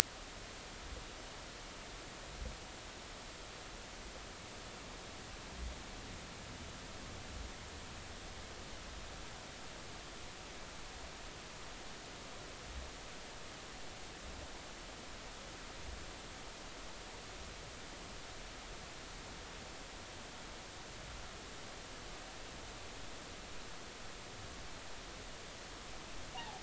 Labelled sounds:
26.4	26.6	humpback whale, 0.80 to 1.0 kHz

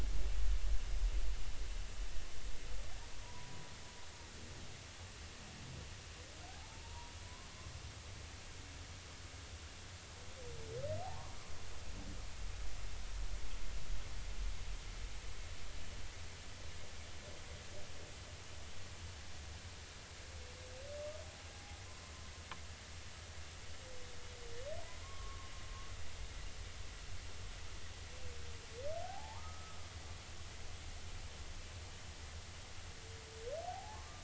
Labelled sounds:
3.2	3.5	humpback whale, 0.90 to 1.1 kHz
6.5	7.1	humpback whale, 0.80 to 1.0 kHz
11.0	11.4	humpback whale, 0.80 to 1.2 kHz
21.5	21.8	humpback whale, 0.80 to 0.86 kHz
25.0	25.5	humpback whale, 1.0 to 1.2 kHz
29.0	29.8	humpback whale, 0.80 to 1.3 kHz
33.7	34.2	humpback whale, 0.80 to 1.3 kHz

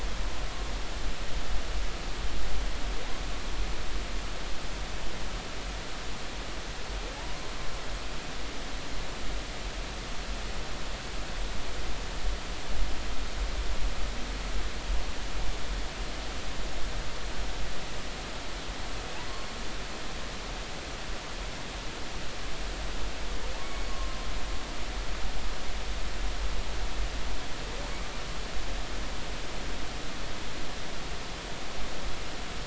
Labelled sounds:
23.6	24.2	humpback whale, 0.99 to 2.3 kHz

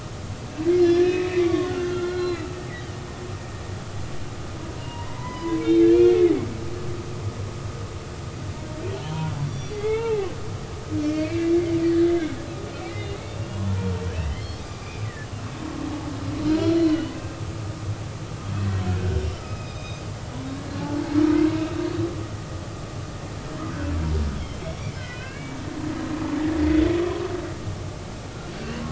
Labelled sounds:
0.6	2.6	humpback whale, 1.0 to 5.8 kHz
4.7	6.4	humpback whale, 0.90 to 3.8 kHz
9.5	10.3	humpback whale, 0.80 to 5.8 kHz
11.0	11.6	humpback whale, 2.1 to 2.8 kHz
12.0	12.4	humpback whale, 2.0 to 2.3 kHz
12.9	13.2	humpback whale, 2.8 to 2.9 kHz
14.3	15.5	humpback whale, 1.7 to 4.9 kHz
16.6	17.1	humpback whale, 2.8 to 4.3 kHz
19.3	20.0	humpback whale, 1.2 to 6.3 kHz
24.6	25.6	humpback whale, 1.4 to 3.2 kHz

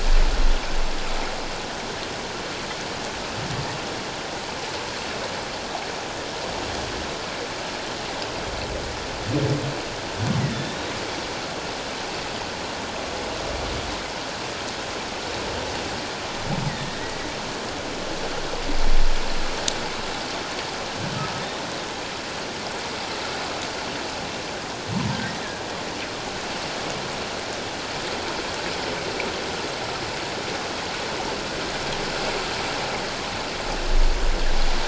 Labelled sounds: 10.4	10.9	humpback whale, 1.7 to 3.9 kHz

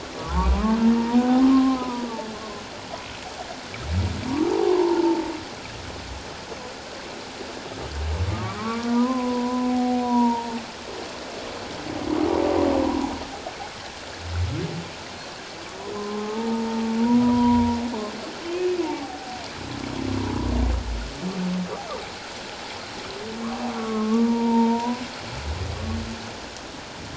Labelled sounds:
0.2	0.8	humpback whale, 0.84 to 1.3 kHz
1.4	2.1	humpback whale, 0.91 to 1.3 kHz
4.5	5.2	humpback whale, 0.78 to 1.1 kHz
8.4	10.6	humpback whale, 0.78 to 1.5 kHz
15.9	17.8	humpback whale, 0.81 to 1.1 kHz
18.4	19.4	humpback whale, 0.78 to 2.6 kHz
23.7	25.0	humpback whale, 0.84 to 1.2 kHz

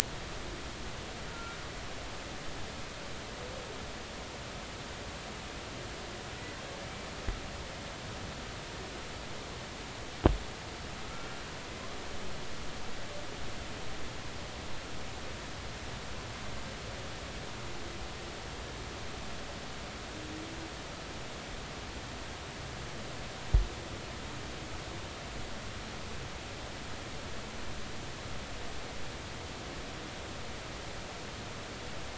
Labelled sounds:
1.3	1.6	humpback whale, 1.3 to 1.5 kHz

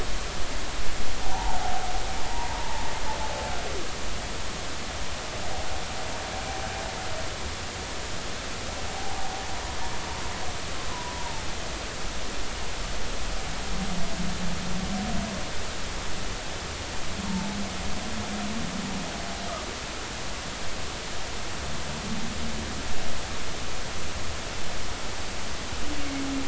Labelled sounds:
1.2	2.6	humpback whale, 0.80 to 1.1 kHz
8.9	9.3	humpback whale, 0.80 to 0.96 kHz
10.9	11.4	humpback whale, 0.83 to 1.1 kHz
17.3	17.6	humpback whale, 0.83 to 0.96 kHz

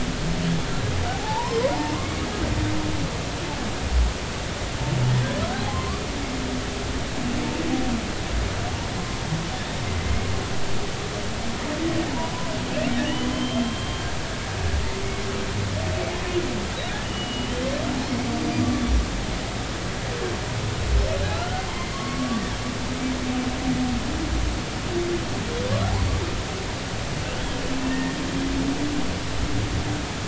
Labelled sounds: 1.1	2.0	humpback whale, 0.80 to 1.1 kHz
5.7	6.0	humpback whale, 0.99 to 1.2 kHz
12.9	14.0	humpback whale, 1.7 to 3.3 kHz
17.0	17.5	humpback whale, 2.8 to 3.0 kHz
18.4	18.7	humpback whale, 4.7 to 4.9 kHz
21.3	22.4	humpback whale, 1.0 to 1.5 kHz
27.9	28.2	humpback whale, 1.8 to 1.9 kHz

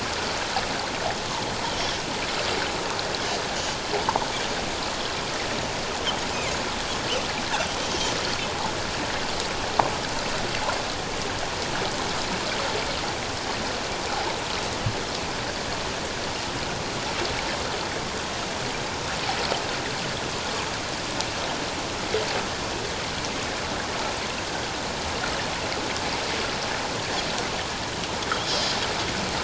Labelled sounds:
1.7	2.0	Pacific white-sided dolphin, 5.3 to 5.7 kHz
6.3	6.6	Pacific white-sided dolphin, 2.0 to 2.6 kHz
7.8	8.0	Pacific white-sided dolphin, 6.0 to 6.3 kHz
28.4	28.7	Pacific white-sided dolphin, 4.7 to 5.6 kHz

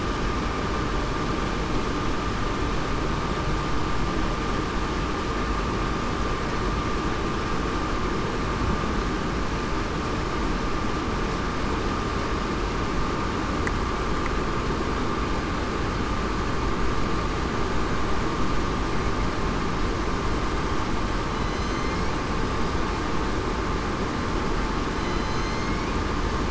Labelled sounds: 21.3	22.0	killer whale, southern resident, 3.9 to 6.3 kHz
25.0	25.7	killer whale, southern resident, 3.0 to 4.3 kHz

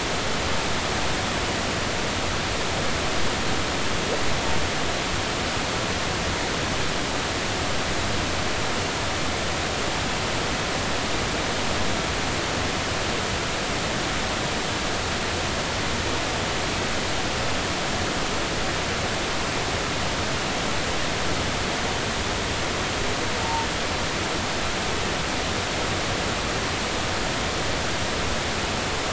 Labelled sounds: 23.4	23.7	humpback whale, 0.86 to 0.96 kHz

